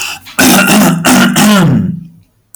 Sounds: Throat clearing